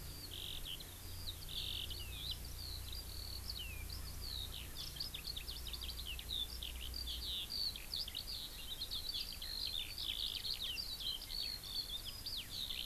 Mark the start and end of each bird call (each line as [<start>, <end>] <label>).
[0.00, 12.86] Eurasian Skylark (Alauda arvensis)